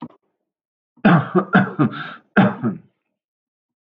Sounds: Cough